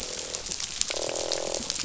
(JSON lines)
{"label": "biophony, croak", "recorder": "SoundTrap 500"}